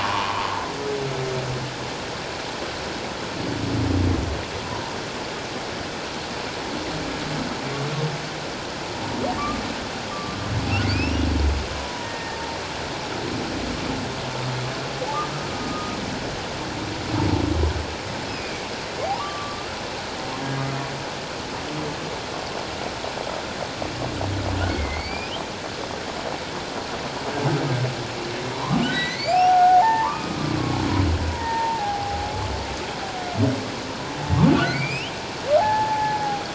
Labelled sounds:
4.6	4.9	humpback whale, 0.84 to 1.0 kHz
10.1	10.4	humpback whale, 1.1 to 1.2 kHz
10.8	11.3	humpback whale, 2.0 to 5.8 kHz
11.8	12.4	humpback whale, 0.91 to 1.9 kHz
15.6	16.0	humpback whale, 1.2 to 1.3 kHz
18.3	19.7	humpback whale, 0.78 to 5.2 kHz
24.7	25.3	humpback whale, 2.0 to 5.2 kHz
28.5	30.4	humpback whale, 0.78 to 4.1 kHz
31.3	32.3	humpback whale, 0.78 to 1.9 kHz
34.5	36.3	humpback whale, 0.78 to 3.3 kHz

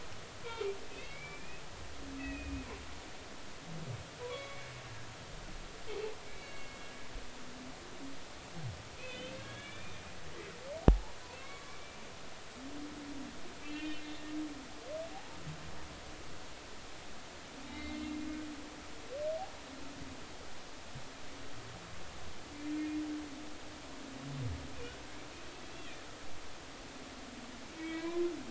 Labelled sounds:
0.9	1.6	humpback whale, 2.0 to 5.3 kHz
2.2	2.6	humpback whale, 1.8 to 2.7 kHz
4.2	4.7	humpback whale, 0.93 to 3.4 kHz
6.3	6.8	humpback whale, 2.1 to 2.3 kHz
9.0	10.0	humpback whale, 1.6 to 4.3 kHz
10.8	11.8	humpback whale, 0.80 to 2.3 kHz
13.6	14.0	humpback whale, 1.8 to 3.1 kHz
17.6	18.0	humpback whale, 2.0 to 4.0 kHz
27.8	28.3	humpback whale, 0.96 to 2.4 kHz

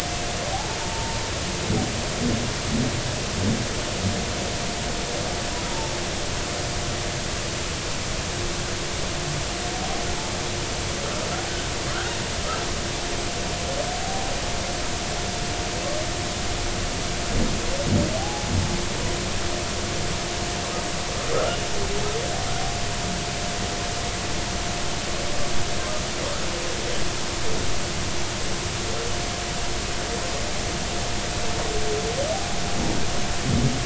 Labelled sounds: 18.2	18.5	humpback whale, 0.80 to 0.90 kHz
21.3	21.6	humpback whale, 1.2 to 1.5 kHz
32.3	32.6	humpback whale, 0.80 to 0.86 kHz

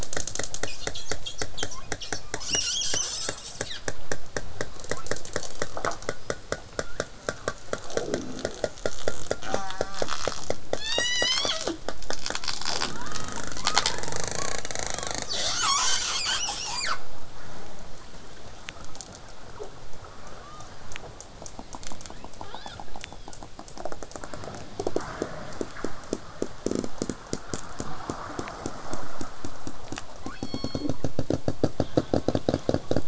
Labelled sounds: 0.6	3.9	killer whale, southern resident, call S10, 0.85 to 8.0 kHz
2.9	3.5	killer whale, southern resident, L pod, call S18, 0.13 to 3.1 kHz
4.9	5.1	killer whale, southern resident, 0.72 to 2.7 kHz
6.1	7.0	killer whale, southern resident, 1.2 to 5.2 kHz
9.4	10.0	killer whale, southern resident, J pod, call S04, 0.29 to 8.0 kHz
10.8	11.8	killer whale, southern resident, call S01, 0.22 to 8.0 kHz
12.9	13.4	killer whale, southern resident, L pod, call S18, 0.87 to 3.9 kHz
15.3	17.0	killer whale, southern resident, call S10, 0.40 to 8.0 kHz
20.2	20.7	killer whale, southern resident, L pod, call S18, 0.87 to 3.8 kHz
21.9	22.2	killer whale, southern resident, 0.80 to 4.3 kHz
22.4	22.8	killer whale, southern resident, L pod, call S18, 0.25 to 5.3 kHz
23.0	23.4	killer whale, southern resident, 1.1 to 5.5 kHz
30.1	30.9	killer whale, southern resident, 0.72 to 5.7 kHz
31.8	33.0	killer whale, southern resident, 0.87 to 4.6 kHz

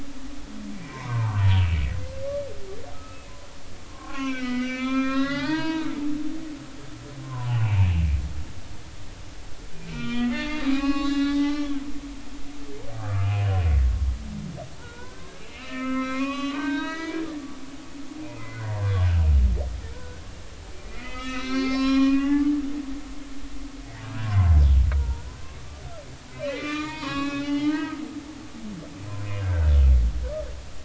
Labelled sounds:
0.7	1.6	humpback whale, 0.83 to 2.4 kHz
2.9	5.9	humpback whale, 0.80 to 6.1 kHz
7.2	7.9	humpback whale, 0.80 to 3.0 kHz
9.9	11.7	humpback whale, 0.80 to 7.4 kHz
12.1	13.7	humpback whale, 1.2 to 3.0 kHz
14.8	17.2	humpback whale, 0.86 to 6.3 kHz
18.2	18.8	humpback whale, 1.4 to 2.6 kHz
19.9	22.6	humpback whale, 0.80 to 6.8 kHz
24.0	25.3	humpback whale, 0.86 to 1.8 kHz
26.3	28.6	humpback whale, 0.83 to 5.7 kHz
29.1	29.8	humpback whale, 1.3 to 2.6 kHz
30.1	30.4	humpback whale, 0.96 to 1.1 kHz

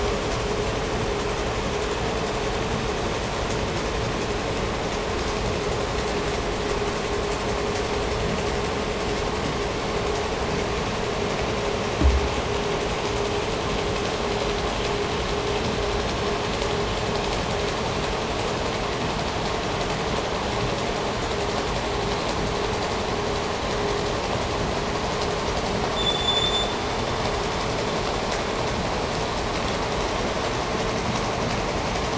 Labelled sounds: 25.8	28.2	vessel noise, 3.0 to 7.4 kHz

